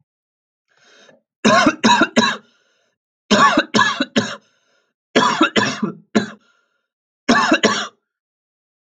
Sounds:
Cough